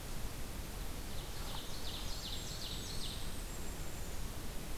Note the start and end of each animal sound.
0.8s-3.5s: Ovenbird (Seiurus aurocapilla)
1.5s-4.3s: Golden-crowned Kinglet (Regulus satrapa)

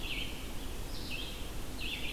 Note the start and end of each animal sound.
0.0s-2.1s: Red-eyed Vireo (Vireo olivaceus)

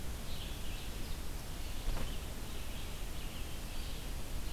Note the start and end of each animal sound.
0.0s-4.5s: Red-eyed Vireo (Vireo olivaceus)

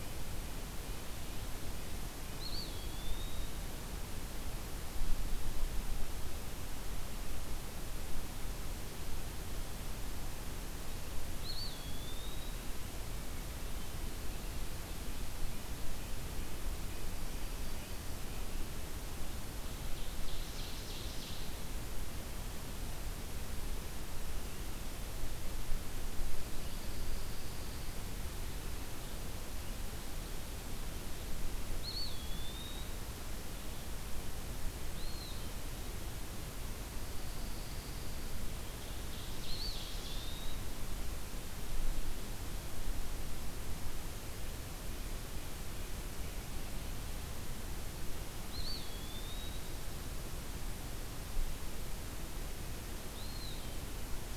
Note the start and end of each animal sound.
2.1s-4.1s: Eastern Wood-Pewee (Contopus virens)
11.1s-13.0s: Eastern Wood-Pewee (Contopus virens)
19.8s-21.6s: Ovenbird (Seiurus aurocapilla)
26.1s-28.0s: Pine Warbler (Setophaga pinus)
31.6s-33.1s: Eastern Wood-Pewee (Contopus virens)
34.8s-35.7s: Eastern Wood-Pewee (Contopus virens)
36.8s-38.3s: Pine Warbler (Setophaga pinus)
38.6s-40.5s: Ovenbird (Seiurus aurocapilla)
39.2s-41.0s: Eastern Wood-Pewee (Contopus virens)
48.2s-50.0s: Eastern Wood-Pewee (Contopus virens)
52.8s-54.1s: Eastern Wood-Pewee (Contopus virens)

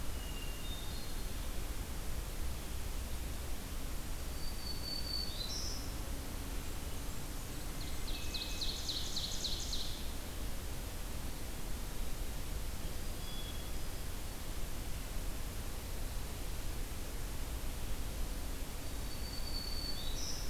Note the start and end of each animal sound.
0.0s-1.4s: Hermit Thrush (Catharus guttatus)
4.1s-6.0s: Black-throated Green Warbler (Setophaga virens)
6.2s-8.2s: Blackburnian Warbler (Setophaga fusca)
7.5s-10.2s: Ovenbird (Seiurus aurocapilla)
7.9s-8.8s: Hermit Thrush (Catharus guttatus)
12.6s-14.2s: Hermit Thrush (Catharus guttatus)
18.6s-20.5s: Black-throated Green Warbler (Setophaga virens)

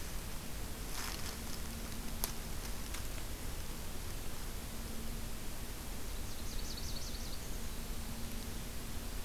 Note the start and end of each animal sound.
6.0s-7.9s: Nashville Warbler (Leiothlypis ruficapilla)

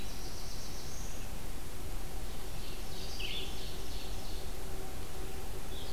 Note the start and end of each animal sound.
0.0s-1.4s: Black-throated Blue Warbler (Setophaga caerulescens)
0.0s-5.9s: Red-eyed Vireo (Vireo olivaceus)
2.4s-4.6s: Ovenbird (Seiurus aurocapilla)

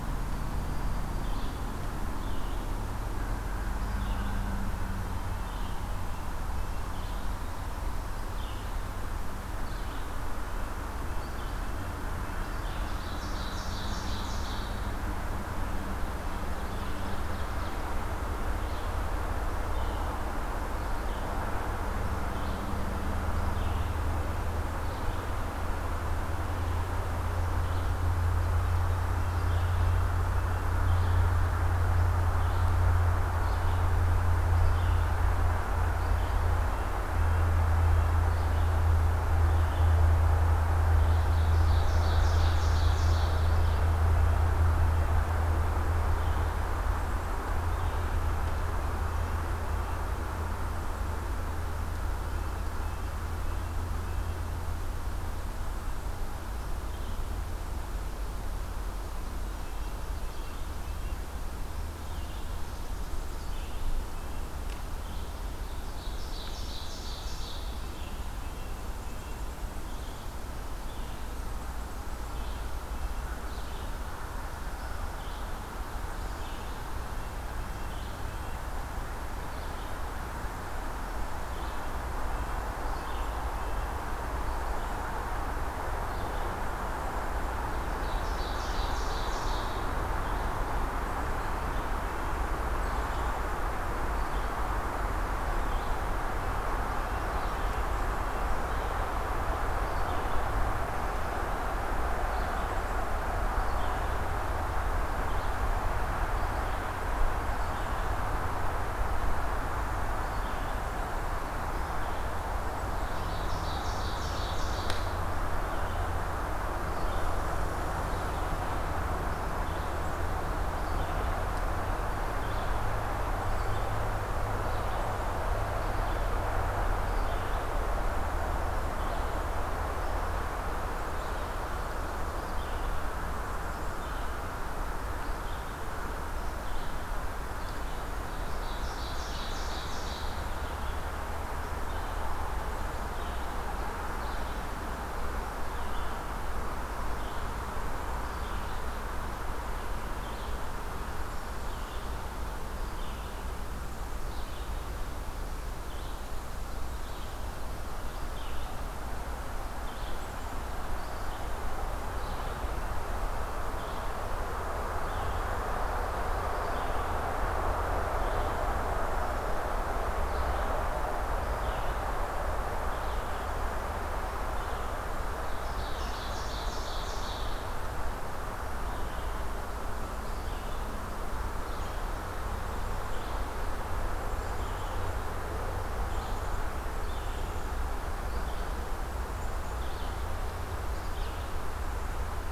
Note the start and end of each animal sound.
0.0s-192.5s: Red-eyed Vireo (Vireo olivaceus)
2.1s-5.0s: American Crow (Corvus brachyrhynchos)
5.2s-6.9s: Red-breasted Nuthatch (Sitta canadensis)
10.3s-12.7s: Red-breasted Nuthatch (Sitta canadensis)
12.4s-15.0s: Ovenbird (Seiurus aurocapilla)
16.1s-18.1s: Ovenbird (Seiurus aurocapilla)
29.1s-30.6s: Red-breasted Nuthatch (Sitta canadensis)
37.0s-38.3s: Red-breasted Nuthatch (Sitta canadensis)
40.5s-43.9s: Ovenbird (Seiurus aurocapilla)
52.2s-54.6s: Red-breasted Nuthatch (Sitta canadensis)
59.5s-61.2s: Red-breasted Nuthatch (Sitta canadensis)
65.6s-68.3s: Ovenbird (Seiurus aurocapilla)
67.0s-69.4s: Red-breasted Nuthatch (Sitta canadensis)
68.6s-70.2s: Golden-crowned Kinglet (Regulus satrapa)
70.7s-75.5s: American Crow (Corvus brachyrhynchos)
71.1s-72.5s: Golden-crowned Kinglet (Regulus satrapa)
77.0s-78.7s: Red-breasted Nuthatch (Sitta canadensis)
81.2s-83.8s: Red-breasted Nuthatch (Sitta canadensis)
87.8s-90.2s: Ovenbird (Seiurus aurocapilla)
96.9s-98.9s: Red-breasted Nuthatch (Sitta canadensis)
112.7s-115.1s: Ovenbird (Seiurus aurocapilla)
138.3s-140.7s: Ovenbird (Seiurus aurocapilla)
175.1s-177.9s: Ovenbird (Seiurus aurocapilla)
182.5s-183.3s: Black-capped Chickadee (Poecile atricapillus)
184.1s-185.2s: Black-capped Chickadee (Poecile atricapillus)
186.1s-186.6s: Black-capped Chickadee (Poecile atricapillus)
187.1s-187.7s: Black-capped Chickadee (Poecile atricapillus)
189.1s-189.9s: Black-capped Chickadee (Poecile atricapillus)
190.7s-191.3s: Black-capped Chickadee (Poecile atricapillus)

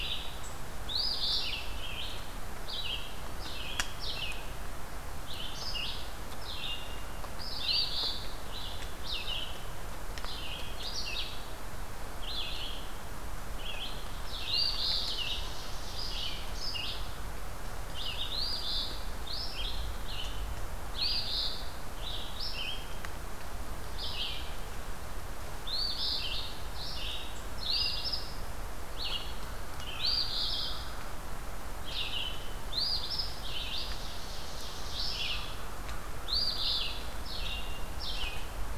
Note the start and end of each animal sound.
0.0s-38.8s: Red-eyed Vireo (Vireo olivaceus)
0.7s-1.8s: Eastern Phoebe (Sayornis phoebe)
7.5s-8.3s: Eastern Phoebe (Sayornis phoebe)
14.3s-15.3s: Eastern Phoebe (Sayornis phoebe)
14.4s-16.4s: Ovenbird (Seiurus aurocapilla)
18.2s-19.1s: Eastern Phoebe (Sayornis phoebe)
20.9s-21.8s: Eastern Phoebe (Sayornis phoebe)
25.5s-26.5s: Eastern Phoebe (Sayornis phoebe)
27.6s-28.3s: Eastern Phoebe (Sayornis phoebe)
29.9s-31.2s: Eastern Phoebe (Sayornis phoebe)
32.6s-33.4s: Eastern Phoebe (Sayornis phoebe)
33.5s-35.4s: Ovenbird (Seiurus aurocapilla)
36.1s-37.1s: Eastern Phoebe (Sayornis phoebe)

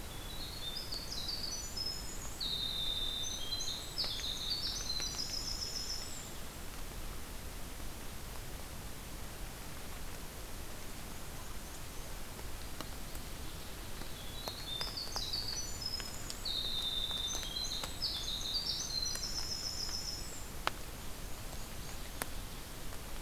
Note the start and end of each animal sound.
0.0s-6.3s: Winter Wren (Troglodytes hiemalis)
10.8s-12.3s: Black-and-white Warbler (Mniotilta varia)
14.0s-20.5s: Winter Wren (Troglodytes hiemalis)
20.7s-22.4s: Black-and-white Warbler (Mniotilta varia)

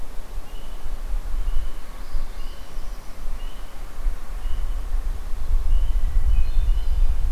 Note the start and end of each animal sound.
1.9s-3.2s: Northern Parula (Setophaga americana)
6.0s-7.3s: Hermit Thrush (Catharus guttatus)

